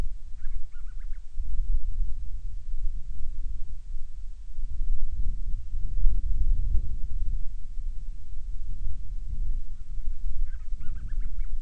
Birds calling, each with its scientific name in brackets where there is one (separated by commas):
Band-rumped Storm-Petrel (Hydrobates castro)